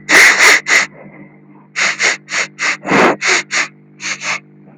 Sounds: Sniff